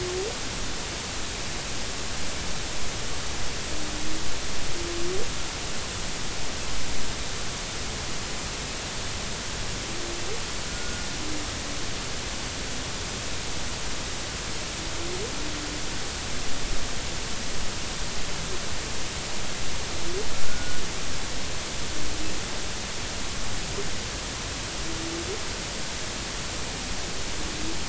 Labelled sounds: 10.7	11.1	humpback whale, 1.4 to 1.5 kHz
20.3	20.8	humpback whale, 1.3 to 1.5 kHz

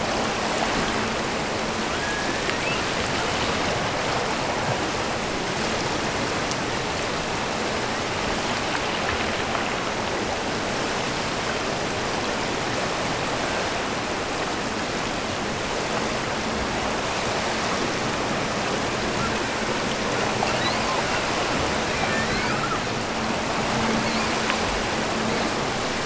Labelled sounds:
1.9	2.9	killer whale, offshore, 1.4 to 3.1 kHz
20.4	21.0	killer whale, offshore, 2.5 to 5.1 kHz
22.1	22.8	killer whale, offshore, 1.5 to 5.2 kHz
24.0	24.5	killer whale, offshore, 2.2 to 5.0 kHz

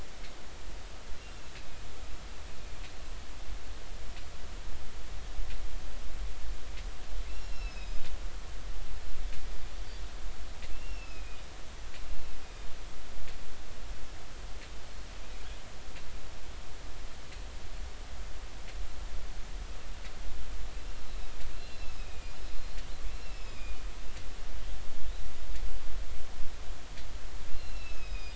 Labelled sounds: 1.6	1.8	killer whale, northern resident, A clan, AA subclan, A05 pod, call N04, 2.4 to 2.6 kHz
7.3	8.0	killer whale, northern resident, A clan, AA subclan, A05 pod, call N04, 3.9 to 5.6 kHz
8.3	9.0	killer whale, northern resident, A clan, AA subclan, A05 pod, call N04, 2.5 to 2.8 kHz
10.7	11.4	killer whale, northern resident, A clan, AA subclan, A05 pod, call N04, 2.4 to 5.6 kHz
21.1	22.8	killer whale, northern resident, A clan, AA subclan, A05 pod, call N04, 2.4 to 4.3 kHz
23.1	23.9	killer whale, northern resident, A clan, AA subclan, A05 pod, call N04, 2.2 to 5.3 kHz
27.5	28.3	killer whale, northern resident, A clan, AA subclan, A05 pod, call N04, 2.4 to 5.3 kHz

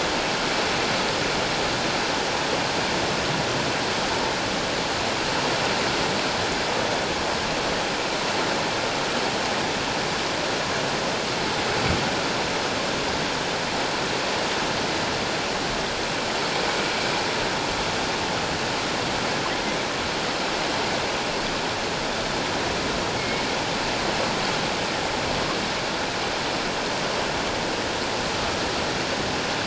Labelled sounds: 23.2	23.4	humpback whale, 2.1 to 2.2 kHz

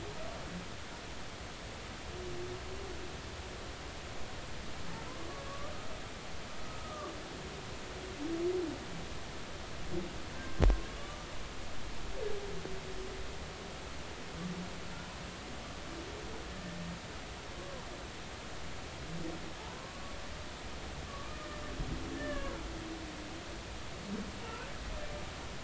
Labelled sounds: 5.5	5.7	humpback whale, 1.1 to 1.2 kHz
6.8	7.1	humpback whale, 1.1 to 1.3 kHz
10.4	11.3	humpback whale, 1.1 to 1.6 kHz
16.5	16.8	humpback whale, 1.7 to 1.8 kHz
19.8	20.1	humpback whale, 1.0 to 1.2 kHz
21.0	21.4	humpback whale, 1.1 to 1.3 kHz
22.1	22.5	humpback whale, 0.96 to 1.9 kHz

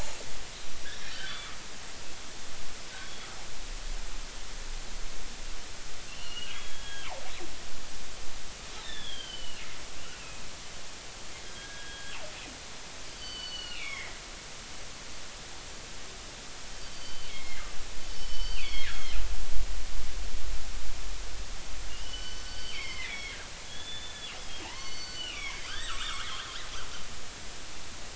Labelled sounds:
0.9	1.6	killer whale, northern resident, G clan, 1.1 to 5.7 kHz
3.0	3.3	killer whale, northern resident, G clan, GI subclan, call N23i, 3.2 to 3.4 kHz
6.1	6.6	killer whale, northern resident, G clan, 2.5 to 3.1 kHz
6.4	7.1	killer whale, northern resident, G clan, GG subclan, call N29, 1.6 to 3.4 kHz
8.8	9.6	killer whale, northern resident, G clan, call N25, 1.5 to 4.0 kHz
10.1	10.4	killer whale, northern resident, G clan, 2.4 to 2.8 kHz
11.4	12.2	killer whale, northern resident, G clan, GG subclan, call N29, 1.5 to 3.3 kHz
13.2	14.2	killer whale, northern resident, G clan, GG subclan, call N23ii, 1.8 to 4.7 kHz
16.7	17.6	killer whale, northern resident, G clan, GG subclan, call N23ii, 2.0 to 4.7 kHz
18.1	19.2	killer whale, northern resident, G clan, GG subclan, call N23ii, 1.5 to 5.5 kHz
21.9	23.4	killer whale, northern resident, G clan, GG subclan, call N23ii, 1.4 to 6.1 kHz
23.6	24.3	killer whale, northern resident, G clan, GG subclan, call N28, 3.1 to 3.6 kHz
24.6	25.6	killer whale, northern resident, G clan, GG subclan, call N23ii, 0.80 to 6.0 kHz
25.5	26.4	killer whale, northern resident, G clan, GG subclan, 1.1 to 4.7 kHz

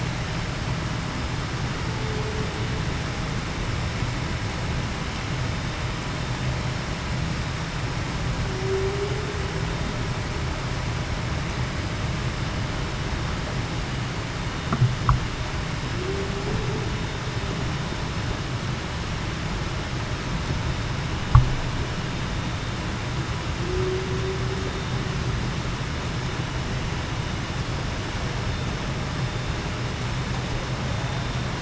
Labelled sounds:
8.4	9.1	humpback whale, 0.35 to 0.45 kHz
15.9	16.3	humpback whale, 0.33 to 0.42 kHz
23.6	24.1	humpback whale, 0.33 to 0.45 kHz

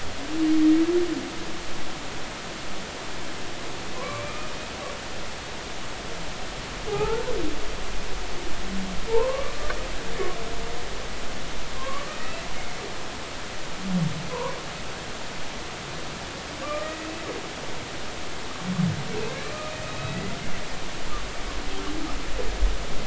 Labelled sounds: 4.0	4.5	humpback whale, 0.96 to 2.5 kHz
6.9	7.3	humpback whale, 0.80 to 1.6 kHz
9.1	9.7	humpback whale, 0.83 to 1.2 kHz
11.8	12.4	humpback whale, 0.99 to 2.0 kHz
14.3	14.5	humpback whale, 0.90 to 1.2 kHz
16.6	17.1	humpback whale, 1.1 to 2.0 kHz
19.3	19.5	humpback whale, 1.6 to 2.4 kHz
19.8	20.3	humpback whale, 1.9 to 2.6 kHz

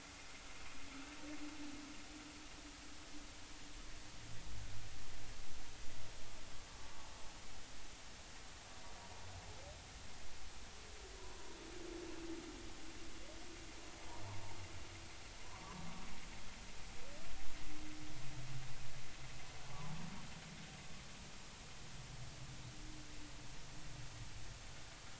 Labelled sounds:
19.6	19.9	humpback whale, 0.80 to 1.2 kHz

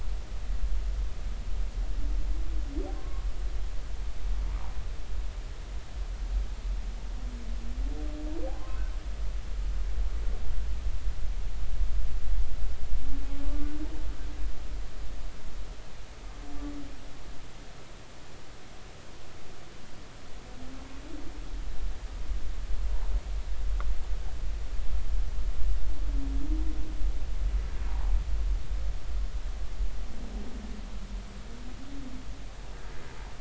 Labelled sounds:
2.9	3.3	humpback whale, 1.0 to 1.2 kHz
8.5	8.8	humpback whale, 0.99 to 1.1 kHz
13.4	13.7	humpback whale, 1.1 to 1.2 kHz
27.9	28.1	humpback whale, 0.80 to 1.0 kHz

